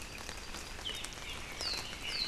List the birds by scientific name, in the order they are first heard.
Himatione sanguinea, Leiothrix lutea